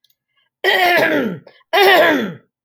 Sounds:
Throat clearing